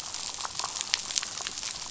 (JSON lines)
{"label": "biophony, damselfish", "recorder": "SoundTrap 500"}